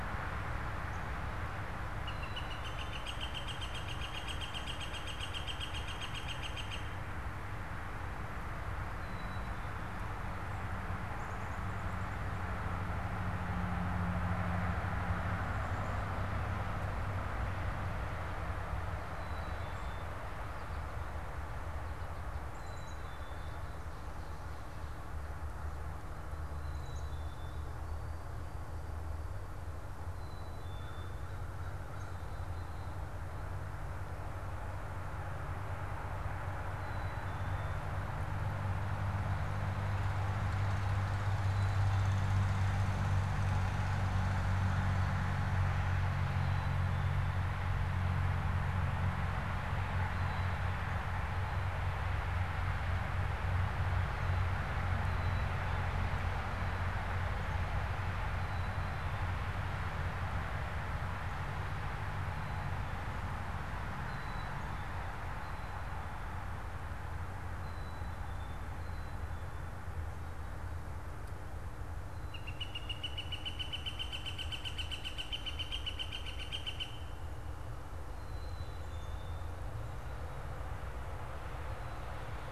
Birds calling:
Black-capped Chickadee (Poecile atricapillus)
American Goldfinch (Spinus tristis)
Northern Flicker (Colaptes auratus)

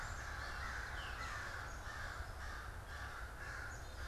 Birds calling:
Black-capped Chickadee (Poecile atricapillus)
Veery (Catharus fuscescens)
American Crow (Corvus brachyrhynchos)

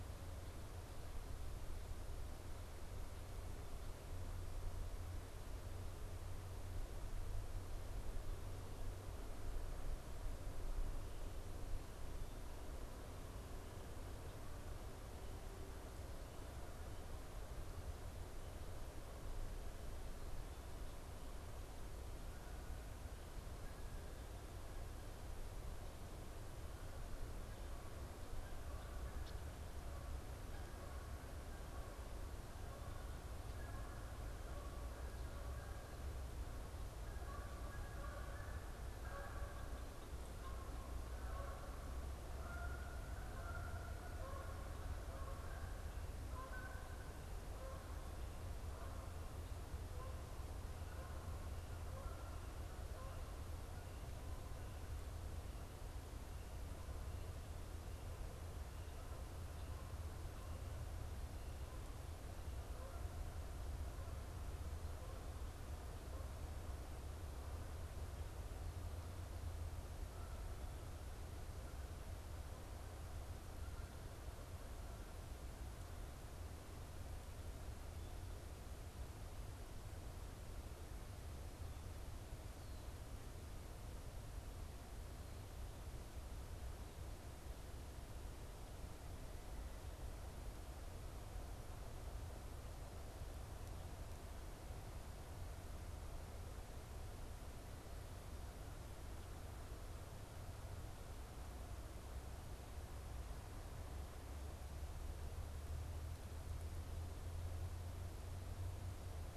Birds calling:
Canada Goose (Branta canadensis)
Red-winged Blackbird (Agelaius phoeniceus)

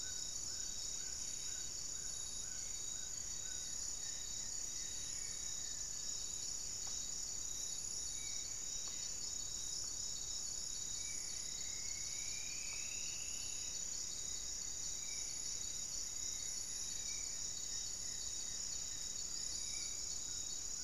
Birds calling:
Spot-winged Antshrike (Pygiptila stellaris)
Goeldi's Antbird (Akletos goeldii)
Buff-breasted Wren (Cantorchilus leucotis)
Amazonian Trogon (Trogon ramonianus)
Striped Woodcreeper (Xiphorhynchus obsoletus)
Amazonian Barred-Woodcreeper (Dendrocolaptes certhia)

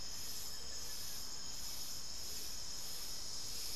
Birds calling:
Hauxwell's Thrush (Turdus hauxwelli)
Speckled Chachalaca (Ortalis guttata)
Buff-throated Woodcreeper (Xiphorhynchus guttatus)

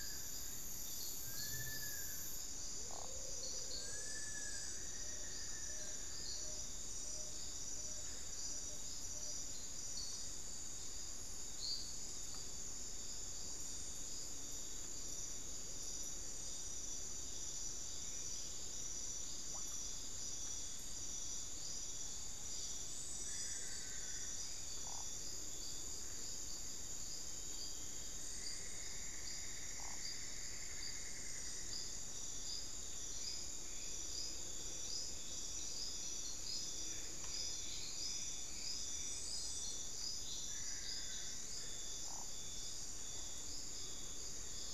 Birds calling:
Cinnamon-throated Woodcreeper (Dendrexetastes rufigula)
Long-billed Woodcreeper (Nasica longirostris)
Solitary Black Cacique (Cacicus solitarius)
Tawny-bellied Screech-Owl (Megascops watsonii)
Buff-throated Woodcreeper (Xiphorhynchus guttatus)
Amazonian Motmot (Momotus momota)

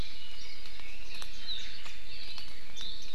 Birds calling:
Red-billed Leiothrix (Leiothrix lutea)

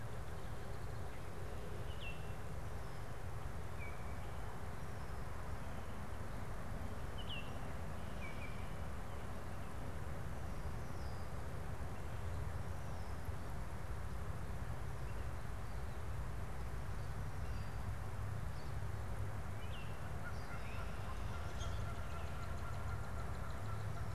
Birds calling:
Baltimore Oriole (Icterus galbula)
Pine Siskin (Spinus pinus)
Northern Cardinal (Cardinalis cardinalis)

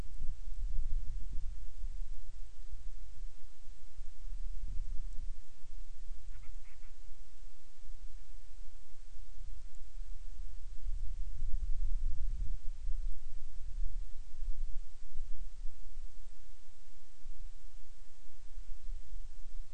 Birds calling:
Band-rumped Storm-Petrel (Hydrobates castro)

